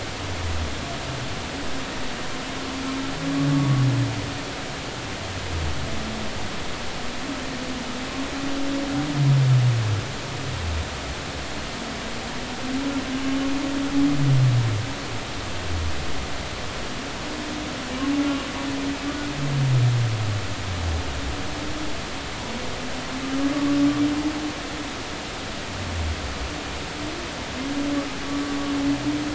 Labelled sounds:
3.5	3.8	humpback whale, 1.1 to 1.2 kHz

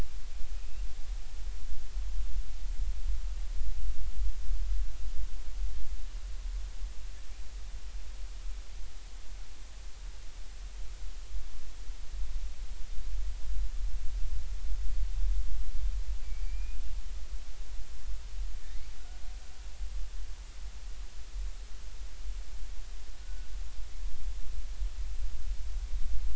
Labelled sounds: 0.5	0.8	killer whale, Bigg's (transient), 2.4 to 2.9 kHz
16.4	16.8	killer whale, Bigg's (transient), 2.3 to 2.6 kHz
23.2	23.5	killer whale, Bigg's (transient), 1.4 to 1.5 kHz

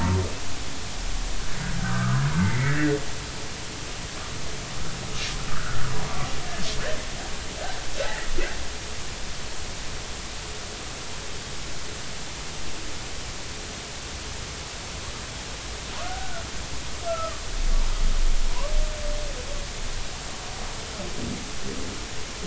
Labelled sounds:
1.8	2.9	humpback whale, 0.86 to 2.3 kHz
5.5	5.8	humpback whale, 1.1 to 1.7 kHz
8.0	8.3	humpback whale, 1.7 to 2.0 kHz
15.9	17.4	humpback whale, 0.93 to 1.5 kHz

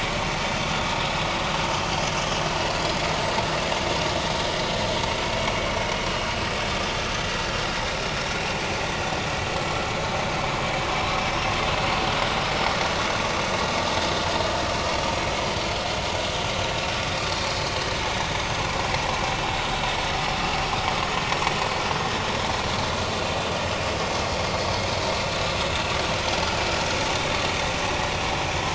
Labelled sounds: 8.8	9.1	vessel noise, 4.5 to 4.7 kHz

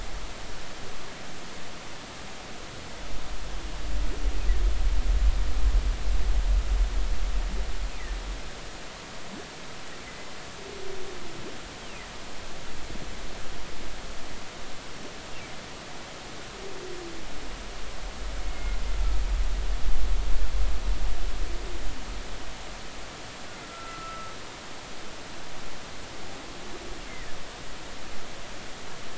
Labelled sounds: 10.1	10.3	humpback whale, 2.0 to 2.1 kHz
18.4	18.8	humpback whale, 2.1 to 2.2 kHz
23.6	24.3	humpback whale, 1.2 to 1.4 kHz

